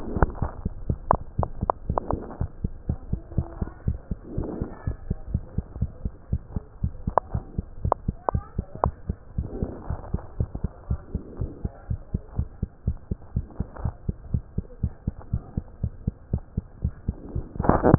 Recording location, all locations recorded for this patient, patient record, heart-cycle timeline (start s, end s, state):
mitral valve (MV)
aortic valve (AV)+pulmonary valve (PV)+tricuspid valve (TV)+mitral valve (MV)
#Age: Child
#Sex: Male
#Height: 116.0 cm
#Weight: 20.5 kg
#Pregnancy status: False
#Murmur: Absent
#Murmur locations: nan
#Most audible location: nan
#Systolic murmur timing: nan
#Systolic murmur shape: nan
#Systolic murmur grading: nan
#Systolic murmur pitch: nan
#Systolic murmur quality: nan
#Diastolic murmur timing: nan
#Diastolic murmur shape: nan
#Diastolic murmur grading: nan
#Diastolic murmur pitch: nan
#Diastolic murmur quality: nan
#Outcome: Normal
#Campaign: 2015 screening campaign
0.00	2.62	unannotated
2.62	2.72	S2
2.72	2.86	diastole
2.86	2.98	S1
2.98	3.06	systole
3.06	3.20	S2
3.20	3.36	diastole
3.36	3.50	S1
3.50	3.60	systole
3.60	3.72	S2
3.72	3.86	diastole
3.86	3.98	S1
3.98	4.10	systole
4.10	4.18	S2
4.18	4.34	diastole
4.34	4.48	S1
4.48	4.58	systole
4.58	4.70	S2
4.70	4.86	diastole
4.86	4.98	S1
4.98	5.08	systole
5.08	5.18	S2
5.18	5.30	diastole
5.30	5.46	S1
5.46	5.56	systole
5.56	5.66	S2
5.66	5.78	diastole
5.78	5.90	S1
5.90	6.04	systole
6.04	6.14	S2
6.14	6.30	diastole
6.30	6.42	S1
6.42	6.54	systole
6.54	6.66	S2
6.66	6.82	diastole
6.82	6.94	S1
6.94	7.06	systole
7.06	7.16	S2
7.16	7.32	diastole
7.32	7.44	S1
7.44	7.56	systole
7.56	7.66	S2
7.66	7.82	diastole
7.82	7.96	S1
7.96	8.06	systole
8.06	8.16	S2
8.16	8.32	diastole
8.32	8.44	S1
8.44	8.56	systole
8.56	8.68	S2
8.68	8.84	diastole
8.84	8.94	S1
8.94	9.08	systole
9.08	9.18	S2
9.18	9.36	diastole
9.36	9.50	S1
9.50	9.60	systole
9.60	9.72	S2
9.72	9.88	diastole
9.88	10.00	S1
10.00	10.12	systole
10.12	10.22	S2
10.22	10.38	diastole
10.38	10.50	S1
10.50	10.62	systole
10.62	10.74	S2
10.74	10.90	diastole
10.90	11.02	S1
11.02	11.14	systole
11.14	11.24	S2
11.24	11.40	diastole
11.40	11.52	S1
11.52	11.60	systole
11.60	11.74	S2
11.74	11.90	diastole
11.90	12.02	S1
12.02	12.10	systole
12.10	12.24	S2
12.24	12.36	diastole
12.36	12.48	S1
12.48	12.58	systole
12.58	12.72	S2
12.72	12.86	diastole
12.86	12.98	S1
12.98	13.10	systole
13.10	13.18	S2
13.18	13.34	diastole
13.34	13.46	S1
13.46	13.56	systole
13.56	13.70	S2
13.70	13.82	diastole
13.82	13.94	S1
13.94	14.04	systole
14.04	14.18	S2
14.18	14.32	diastole
14.32	14.44	S1
14.44	14.54	systole
14.54	14.68	S2
14.68	14.82	diastole
14.82	14.94	S1
14.94	15.06	systole
15.06	15.18	S2
15.18	15.32	diastole
15.32	15.44	S1
15.44	15.56	systole
15.56	15.66	S2
15.66	15.82	diastole
15.82	15.94	S1
15.94	16.06	systole
16.06	16.16	S2
16.16	16.32	diastole
16.32	16.44	S1
16.44	16.58	systole
16.58	16.68	S2
16.68	16.82	diastole
16.82	16.94	S1
16.94	17.04	systole
17.04	17.16	S2
17.16	17.98	unannotated